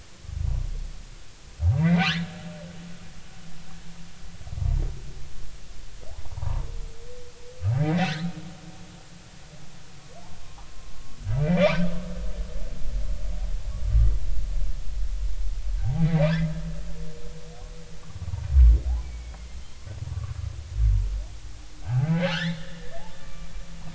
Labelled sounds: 1.8	2.4	humpback whale, 1.3 to 2.5 kHz
6.3	6.6	humpback whale, 0.83 to 1.2 kHz
7.8	8.1	humpback whale, 1.9 to 2.1 kHz
10.4	10.9	humpback whale, 0.80 to 1.3 kHz
11.4	11.8	humpback whale, 1.5 to 2.4 kHz
13.9	14.1	humpback whale, 1.15 to 1.25 kHz
15.8	16.3	humpback whale, 0.80 to 2.2 kHz
19.0	19.5	humpback whale, 2.0 to 2.4 kHz
21.8	23.5	humpback whale, 0.80 to 2.4 kHz

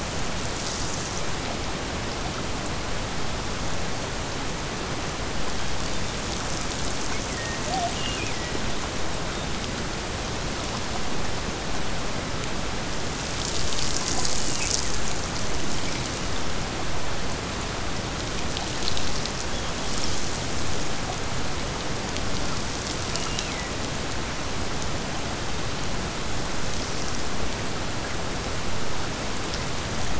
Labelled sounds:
7.8	8.7	killer whale, Bigg's (transient), Gulf of Alaska transient, 1.7 to 3.2 kHz
14.3	15.2	killer whale, Bigg's (transient), Gulf of Alaska transient, 1.5 to 3.1 kHz
23.1	23.8	killer whale, Bigg's (transient), Gulf of Alaska transient, 1.8 to 3.1 kHz

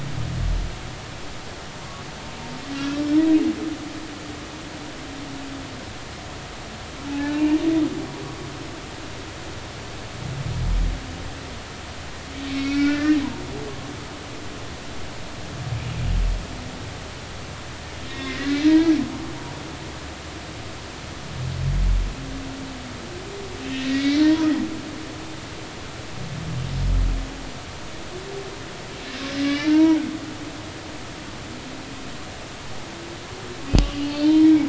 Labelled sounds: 7.1	7.6	humpback whale, 0.80 to 2.9 kHz
12.5	13.2	humpback whale, 1.3 to 5.7 kHz
18.1	19.0	humpback whale, 0.90 to 3.8 kHz
23.7	24.5	humpback whale, 0.90 to 4.1 kHz
29.0	30.0	humpback whale, 0.86 to 4.1 kHz
33.8	34.6	humpback whale, 0.86 to 4.5 kHz

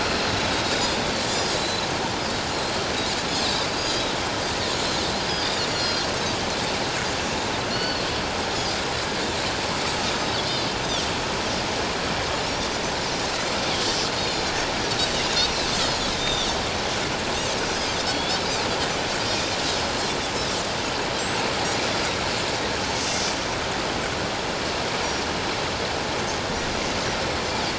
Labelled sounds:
0.0	1.9	Pacific white-sided dolphin, 3.5 to 5.1 kHz
3.3	4.1	Pacific white-sided dolphin, 3.6 to 6.7 kHz
5.3	6.1	Pacific white-sided dolphin, 4.1 to 7.2 kHz
7.7	8.1	Pacific white-sided dolphin, 2.8 to 4.5 kHz
10.4	10.7	Pacific white-sided dolphin, 3.9 to 4.3 kHz
14.2	14.5	Pacific white-sided dolphin, 3.6 to 5.7 kHz
15.7	16.5	Pacific white-sided dolphin, 3.3 to 5.2 kHz
17.7	18.4	Pacific white-sided dolphin, 3.3 to 5.1 kHz
19.2	19.9	Pacific white-sided dolphin, 4.8 to 5.6 kHz

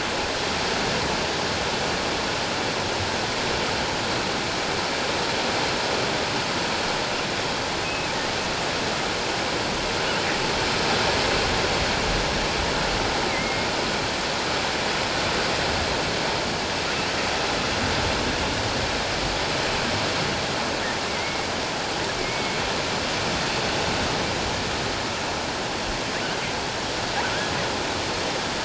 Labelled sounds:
7.8	8.1	killer whale, offshore, 2.5 to 2.6 kHz
13.3	13.7	killer whale, offshore, 2.0 to 2.3 kHz
21.1	21.5	killer whale, offshore, 2.0 to 2.3 kHz
22.2	22.6	killer whale, offshore, 2.1 to 2.3 kHz

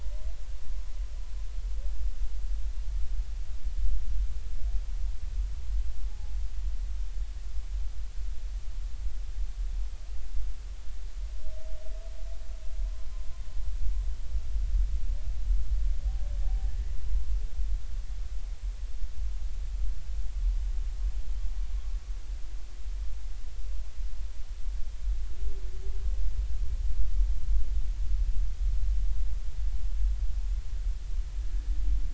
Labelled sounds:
0.0	0.3	humpback whale, 0.93 to 1.1 kHz

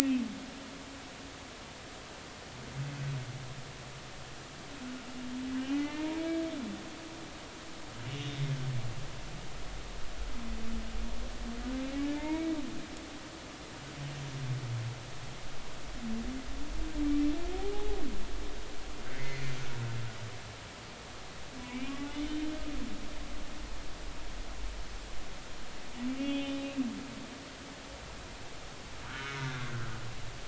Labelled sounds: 5.6	6.1	humpback whale, 2.0 to 3.0 kHz
8.2	8.5	humpback whale, 3.5 to 3.7 kHz
12.1	12.5	humpback whale, 0.86 to 2.3 kHz
17.7	18.0	humpback whale, 0.80 to 0.90 kHz
19.1	19.5	humpback whale, 1.8 to 4.3 kHz
21.7	22.0	humpback whale, 2.2 to 3.1 kHz
26.2	26.9	humpback whale, 0.80 to 3.2 kHz
29.1	29.9	humpback whale, 1.2 to 1.8 kHz

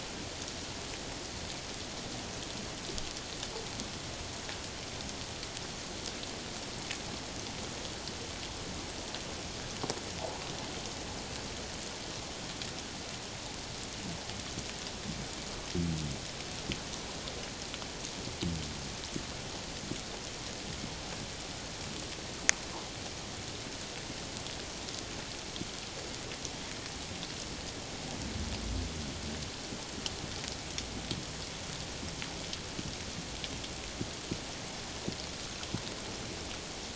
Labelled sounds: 10.2	10.4	water noise, 0.78 to 1.0 kHz

